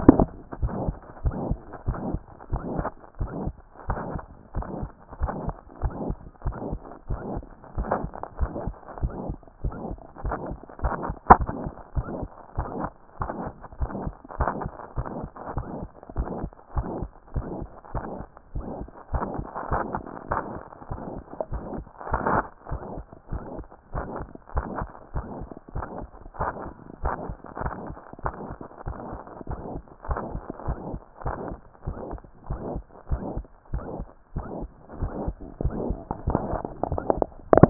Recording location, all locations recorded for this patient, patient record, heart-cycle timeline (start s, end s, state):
mitral valve (MV)
aortic valve (AV)+pulmonary valve (PV)+tricuspid valve (TV)+mitral valve (MV)
#Age: Child
#Sex: Female
#Height: 133.0 cm
#Weight: 29.2 kg
#Pregnancy status: False
#Murmur: Present
#Murmur locations: aortic valve (AV)+mitral valve (MV)+pulmonary valve (PV)+tricuspid valve (TV)
#Most audible location: mitral valve (MV)
#Systolic murmur timing: Holosystolic
#Systolic murmur shape: Plateau
#Systolic murmur grading: III/VI or higher
#Systolic murmur pitch: Medium
#Systolic murmur quality: Musical
#Diastolic murmur timing: nan
#Diastolic murmur shape: nan
#Diastolic murmur grading: nan
#Diastolic murmur pitch: nan
#Diastolic murmur quality: nan
#Outcome: Abnormal
#Campaign: 2014 screening campaign
0.28	0.30	systole
0.30	0.32	S2
0.32	0.60	diastole
0.60	0.74	S1
0.74	0.84	systole
0.84	0.96	S2
0.96	1.24	diastole
1.24	1.36	S1
1.36	1.48	systole
1.48	1.58	S2
1.58	1.86	diastole
1.86	1.98	S1
1.98	2.08	systole
2.08	2.20	S2
2.20	2.50	diastole
2.50	2.62	S1
2.62	2.74	systole
2.74	2.86	S2
2.86	3.20	diastole
3.20	3.32	S1
3.32	3.44	systole
3.44	3.54	S2
3.54	3.88	diastole
3.88	4.00	S1
4.00	4.12	systole
4.12	4.22	S2
4.22	4.56	diastole
4.56	4.66	S1
4.66	4.80	systole
4.80	4.90	S2
4.90	5.20	diastole
5.20	5.32	S1
5.32	5.46	systole
5.46	5.54	S2
5.54	5.82	diastole
5.82	5.94	S1
5.94	6.06	systole
6.06	6.16	S2
6.16	6.44	diastole
6.44	6.56	S1
6.56	6.70	systole
6.70	6.80	S2
6.80	7.08	diastole
7.08	7.20	S1
7.20	7.34	systole
7.34	7.44	S2
7.44	7.76	diastole
7.76	7.90	S1
7.90	8.02	systole
8.02	8.10	S2
8.10	8.40	diastole
8.40	8.52	S1
8.52	8.66	systole
8.66	8.74	S2
8.74	9.02	diastole
9.02	9.14	S1
9.14	9.26	systole
9.26	9.38	S2
9.38	9.64	diastole
9.64	9.76	S1
9.76	9.88	systole
9.88	9.98	S2
9.98	10.24	diastole
10.24	10.36	S1
10.36	10.48	systole
10.48	10.58	S2
10.58	10.82	diastole
10.82	10.96	S1
10.96	11.06	systole
11.06	11.16	S2
11.16	11.34	diastole
11.34	11.48	S1
11.48	11.62	systole
11.62	11.72	S2
11.72	11.96	diastole
11.96	12.06	S1
12.06	12.20	systole
12.20	12.28	S2
12.28	12.56	diastole
12.56	12.68	S1
12.68	12.78	systole
12.78	12.90	S2
12.90	13.20	diastole
13.20	13.30	S1
13.30	13.42	systole
13.42	13.52	S2
13.52	13.80	diastole
13.80	13.92	S1
13.92	14.04	systole
14.04	14.14	S2
14.14	14.38	diastole
14.38	14.50	S1
14.50	14.62	systole
14.62	14.72	S2
14.72	14.96	diastole
14.96	15.08	S1
15.08	15.20	systole
15.20	15.30	S2
15.30	15.54	diastole
15.54	15.66	S1
15.66	15.80	systole
15.80	15.88	S2
15.88	16.16	diastole
16.16	16.28	S1
16.28	16.42	systole
16.42	16.50	S2
16.50	16.76	diastole
16.76	16.88	S1
16.88	17.00	systole
17.00	17.10	S2
17.10	17.34	diastole
17.34	17.46	S1
17.46	17.58	systole
17.58	17.68	S2
17.68	17.94	diastole
17.94	18.04	S1
18.04	18.16	systole
18.16	18.26	S2
18.26	18.54	diastole
18.54	18.66	S1
18.66	18.80	systole
18.80	18.88	S2
18.88	19.12	diastole
19.12	19.26	S1
19.26	19.36	systole
19.36	19.46	S2
19.46	19.70	diastole
19.70	19.82	S1
19.82	19.94	systole
19.94	20.04	S2
20.04	20.30	diastole
20.30	20.40	S1
20.40	20.54	systole
20.54	20.64	S2
20.64	20.90	diastole
20.90	21.00	S1
21.00	21.14	systole
21.14	21.22	S2
21.22	21.52	diastole
21.52	21.62	S1
21.62	21.76	systole
21.76	21.84	S2
21.84	22.12	diastole
22.12	22.22	S1
22.22	22.32	systole
22.32	22.44	S2
22.44	22.70	diastole
22.70	22.82	S1
22.82	22.94	systole
22.94	23.04	S2
23.04	23.32	diastole
23.32	23.42	S1
23.42	23.56	systole
23.56	23.66	S2
23.66	23.94	diastole
23.94	24.06	S1
24.06	24.18	systole
24.18	24.28	S2
24.28	24.54	diastole
24.54	24.66	S1
24.66	24.80	systole
24.80	24.88	S2
24.88	25.14	diastole
25.14	25.26	S1
25.26	25.38	systole
25.38	25.48	S2
25.48	25.74	diastole
25.74	25.86	S1
25.86	25.98	systole
25.98	26.08	S2
26.08	26.38	diastole
26.38	26.50	S1
26.50	26.64	systole
26.64	26.74	S2
26.74	27.02	diastole
27.02	27.14	S1
27.14	27.28	systole
27.28	27.36	S2
27.36	27.62	diastole
27.62	27.74	S1
27.74	27.86	systole
27.86	27.96	S2
27.96	28.24	diastole
28.24	28.34	S1
28.34	28.48	systole
28.48	28.58	S2
28.58	28.86	diastole
28.86	28.96	S1
28.96	29.10	systole
29.10	29.20	S2
29.20	29.48	diastole
29.48	29.60	S1
29.60	29.74	systole
29.74	29.82	S2
29.82	30.08	diastole
30.08	30.20	S1
30.20	30.32	systole
30.32	30.42	S2
30.42	30.66	diastole
30.66	30.78	S1
30.78	30.90	systole
30.90	31.00	S2
31.00	31.24	diastole
31.24	31.36	S1
31.36	31.48	systole
31.48	31.58	S2
31.58	31.86	diastole
31.86	31.98	S1
31.98	32.10	systole
32.10	32.20	S2
32.20	32.48	diastole
32.48	32.60	S1
32.60	32.74	systole
32.74	32.82	S2
32.82	33.10	diastole
33.10	33.24	S1
33.24	33.36	systole
33.36	33.46	S2
33.46	33.72	diastole
33.72	33.84	S1
33.84	33.98	systole
33.98	34.06	S2
34.06	34.36	diastole
34.36	34.46	S1
34.46	34.60	systole
34.60	34.68	S2
34.68	35.00	diastole
35.00	35.12	S1
35.12	35.26	systole
35.26	35.36	S2
35.36	35.62	diastole
35.62	35.74	S1
35.74	35.86	systole
35.86	35.98	S2
35.98	36.26	diastole
36.26	36.40	S1
36.40	36.50	systole
36.50	36.60	S2
36.60	36.90	diastole
36.90	37.02	S1
37.02	37.16	systole
37.16	37.26	S2
37.26	37.54	diastole
37.54	37.70	S1